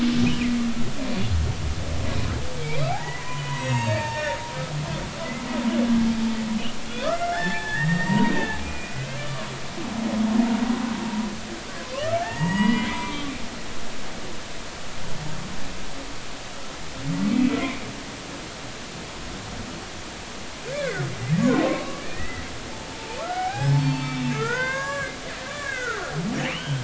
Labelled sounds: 2.9	4.4	humpback whale, 0.80 to 7.8 kHz
6.8	9.5	humpback whale, 0.80 to 7.6 kHz
11.1	11.3	humpback whale, 0.90 to 1.0 kHz
12.2	13.3	humpback whale, 0.80 to 6.8 kHz
17.6	17.8	humpback whale, 2.0 to 2.5 kHz
20.7	21.1	humpback whale, 1.4 to 2.4 kHz
21.4	22.4	humpback whale, 0.96 to 2.1 kHz
23.0	25.2	humpback whale, 0.80 to 7.4 kHz
25.4	26.8	humpback whale, 1.1 to 3.3 kHz

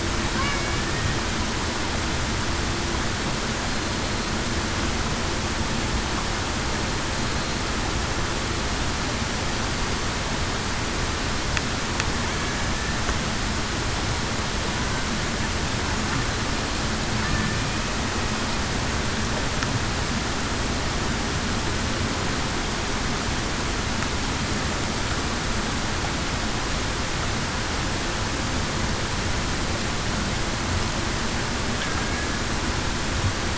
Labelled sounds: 0.4	0.8	killer whale, Bigg's (transient), 2.2 to 2.3 kHz

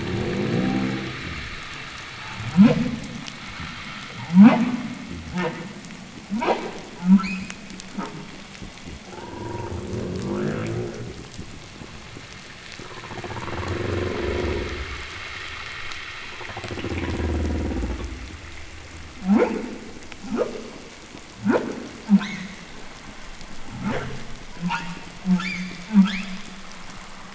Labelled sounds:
0.0	1.7	humpback whale, growl, 0 to 0.96 kHz
2.1	2.9	humpback whale, whup, 0.02 to 5.6 kHz
4.1	4.8	humpback whale, whup, 0.06 to 4.8 kHz
5.0	5.7	humpback whale, grunt, 0.02 to 4.3 kHz
6.2	6.8	humpback whale, whup, 0.13 to 4.6 kHz
6.9	7.5	humpback whale, shriek, 0.15 to 5.3 kHz
7.8	8.2	humpback whale, grunt, 0.11 to 2.4 kHz
8.4	9.1	fish, knock, 0 to 0.42 kHz
8.9	11.6	humpback whale, growl, 0.03 to 3.1 kHz
10.9	12.3	fish, knock, 0.02 to 0.52 kHz
12.8	15.2	humpback whale, growl, 0 to 1.2 kHz
16.2	18.5	humpback whale, growl, 0 to 1.3 kHz
19.1	19.6	humpback whale, whup, 0.12 to 3.0 kHz
20.0	20.6	humpback whale, whup, 0.11 to 3.2 kHz
21.3	21.8	humpback whale, whup, 0.05 to 3.5 kHz
22.0	22.6	humpback whale, shriek, 0.11 to 6.8 kHz
23.5	24.3	humpback whale, whup, 0.03 to 3.6 kHz
24.5	26.4	humpback whale, shriek, 0.07 to 7.6 kHz

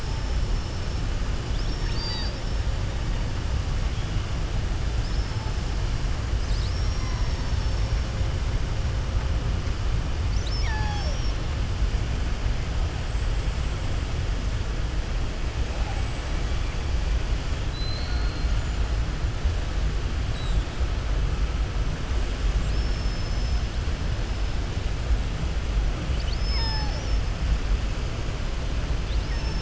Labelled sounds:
4.9	5.6	killer whale, southern resident, 4.2 to 5.3 kHz
10.2	11.4	killer whale, southern resident, 0.63 to 6.8 kHz
15.9	16.8	killer whale, southern resident, 7.2 to 8.0 kHz
17.6	18.5	killer whale, southern resident, 3.9 to 4.4 kHz
22.6	23.5	killer whale, southern resident, 5.0 to 6.4 kHz

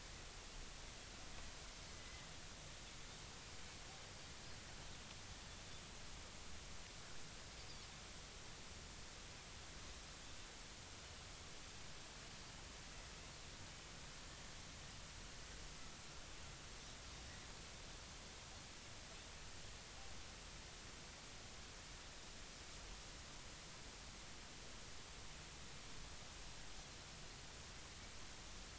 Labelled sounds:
1.9	2.3	Pacific white-sided dolphin, 2.0 to 2.1 kHz

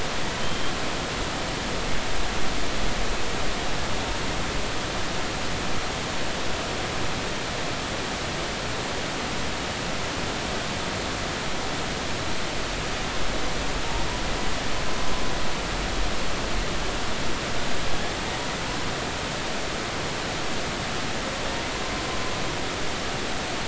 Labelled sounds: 0.4	0.7	humpback whale, 3.0 to 3.2 kHz

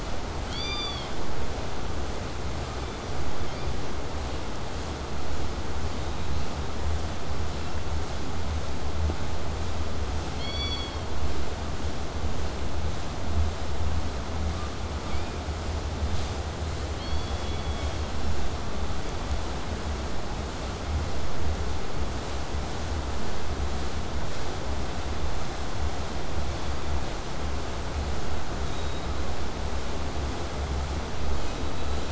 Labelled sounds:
0.4	1.1	killer whale, southern resident, K pod, call S16, 1.0 to 8.0 kHz
10.3	11.1	killer whale, southern resident, K pod, call S16, 1.9 to 7.1 kHz
26.5	27.0	killer whale, southern resident, 3.2 to 5.0 kHz
28.6	29.1	killer whale, southern resident, K pod, call S16, 3.3 to 4.1 kHz
31.2	32.0	killer whale, southern resident, K pod, call S16, 0.95 to 4.2 kHz

